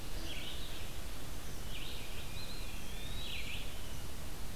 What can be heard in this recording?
Red-eyed Vireo, Tufted Titmouse, Eastern Wood-Pewee